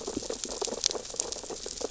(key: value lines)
label: biophony, sea urchins (Echinidae)
recorder: SoundTrap 600 or HydroMoth